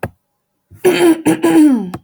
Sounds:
Throat clearing